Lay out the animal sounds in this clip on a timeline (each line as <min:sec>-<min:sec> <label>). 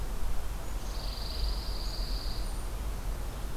0:00.8-0:02.5 Pine Warbler (Setophaga pinus)